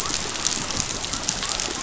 {"label": "biophony", "recorder": "SoundTrap 500"}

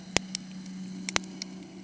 {"label": "anthrophony, boat engine", "recorder": "HydroMoth"}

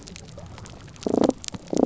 {"label": "biophony", "recorder": "SoundTrap 300"}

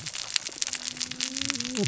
{"label": "biophony, cascading saw", "recorder": "SoundTrap 600 or HydroMoth"}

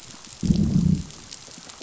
{"label": "biophony, growl", "recorder": "SoundTrap 500"}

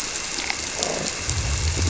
{"label": "biophony", "recorder": "SoundTrap 300"}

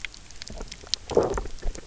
{"label": "biophony, low growl", "recorder": "SoundTrap 300"}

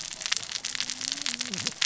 {"label": "biophony, cascading saw", "recorder": "SoundTrap 600 or HydroMoth"}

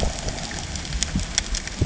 {"label": "ambient", "recorder": "HydroMoth"}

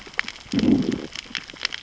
{"label": "biophony, growl", "recorder": "SoundTrap 600 or HydroMoth"}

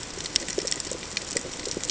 {"label": "ambient", "recorder": "HydroMoth"}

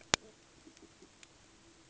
{"label": "ambient", "recorder": "HydroMoth"}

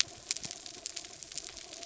{"label": "anthrophony, mechanical", "recorder": "SoundTrap 300"}
{"label": "biophony", "recorder": "SoundTrap 300"}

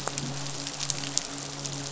{"label": "biophony, midshipman", "recorder": "SoundTrap 500"}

